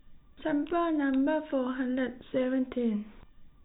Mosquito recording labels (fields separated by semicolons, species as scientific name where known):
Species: no mosquito; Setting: cup